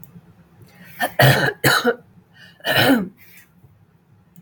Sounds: Throat clearing